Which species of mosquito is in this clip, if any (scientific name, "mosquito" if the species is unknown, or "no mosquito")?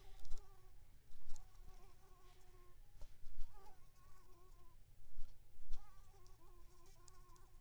Anopheles squamosus